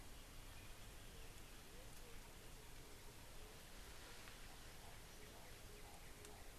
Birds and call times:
White-crested Turaco (Tauraco leucolophus): 5.4s

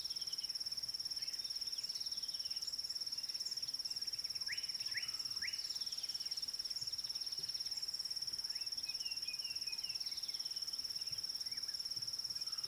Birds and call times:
Red-backed Scrub-Robin (Cercotrichas leucophrys): 2.3s, 10.3s
Slate-colored Boubou (Laniarius funebris): 5.0s

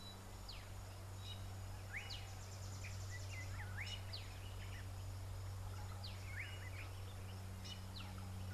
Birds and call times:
Variable Sunbird (Cinnyris venustus): 2.8s
Slate-colored Boubou (Laniarius funebris): 6.4s

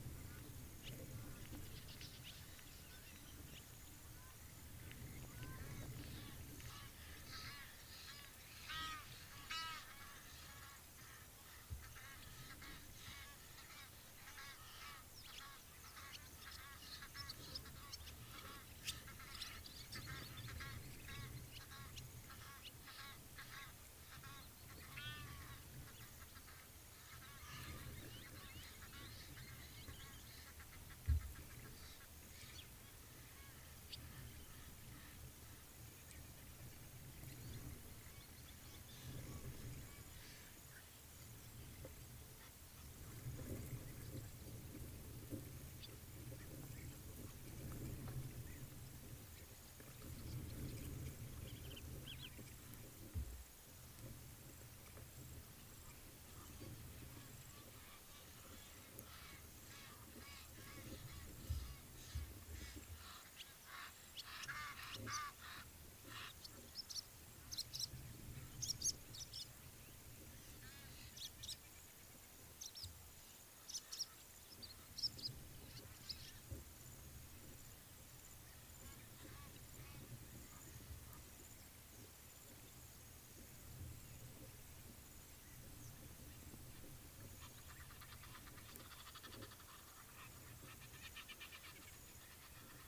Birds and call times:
Gray Crowned-Crane (Balearica regulorum): 5.5s
Egyptian Goose (Alopochen aegyptiaca): 9.7s, 16.7s, 22.5s, 25.1s, 64.7s, 89.2s
Blacksmith Lapwing (Vanellus armatus): 28.6s

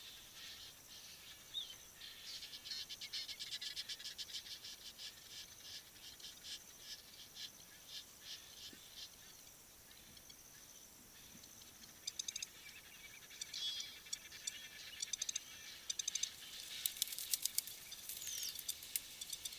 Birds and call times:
Egyptian Goose (Alopochen aegyptiaca): 4.2s, 13.7s
Long-toed Lapwing (Vanellus crassirostris): 12.2s

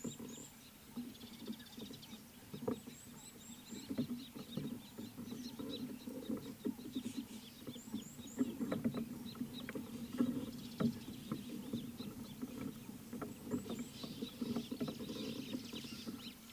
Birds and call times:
Red-cheeked Cordonbleu (Uraeginthus bengalus): 3.2s, 8.1s
Scarlet-chested Sunbird (Chalcomitra senegalensis): 5.8s

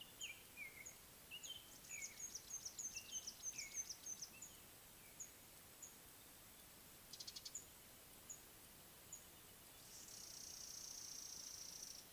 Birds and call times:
Red-backed Scrub-Robin (Cercotrichas leucophrys): 1.4s
Mouse-colored Penduline-Tit (Anthoscopus musculus): 2.8s, 5.2s, 8.3s, 11.0s
Beautiful Sunbird (Cinnyris pulchellus): 7.3s

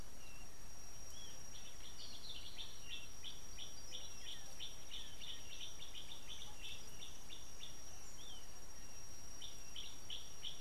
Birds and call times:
Kikuyu White-eye (Zosterops kikuyuensis): 1.2s
Gray Apalis (Apalis cinerea): 2.4s

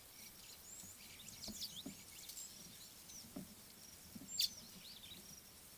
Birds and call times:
Chestnut Weaver (Ploceus rubiginosus): 4.4s

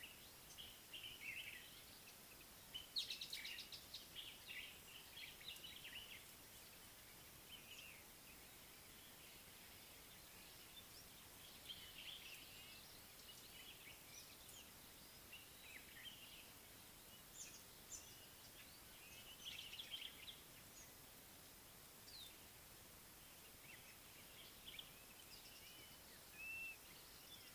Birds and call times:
Common Bulbul (Pycnonotus barbatus): 1.1s, 4.2s, 12.1s, 19.8s
Speckled Mousebird (Colius striatus): 3.4s, 17.4s
Blue-naped Mousebird (Urocolius macrourus): 26.5s

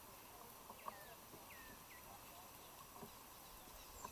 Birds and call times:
African Emerald Cuckoo (Chrysococcyx cupreus): 1.3s

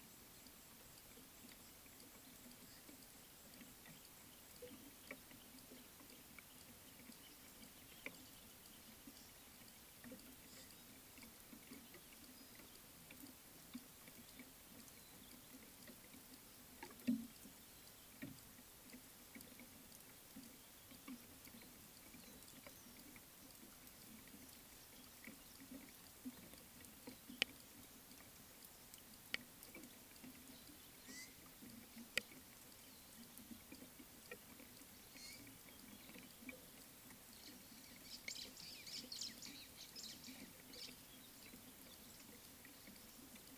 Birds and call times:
White-browed Sparrow-Weaver (Plocepasser mahali): 39.2s

